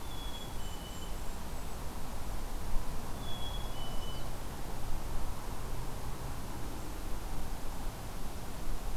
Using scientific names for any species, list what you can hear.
Poecile atricapillus, Regulus satrapa